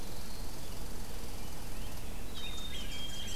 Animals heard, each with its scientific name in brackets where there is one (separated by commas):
Black-capped Chickadee (Poecile atricapillus), Rose-breasted Grosbeak (Pheucticus ludovicianus), Red Squirrel (Tamiasciurus hudsonicus)